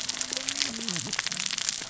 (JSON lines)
{"label": "biophony, cascading saw", "recorder": "SoundTrap 600 or HydroMoth"}